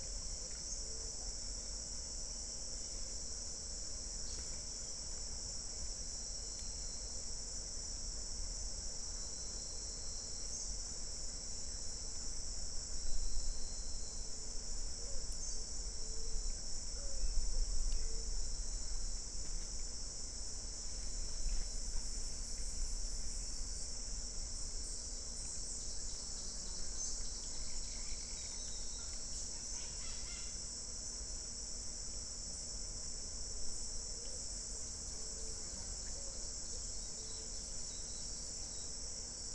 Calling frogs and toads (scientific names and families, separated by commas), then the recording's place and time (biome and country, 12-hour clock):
none
Cerrado, Brazil, 5:45pm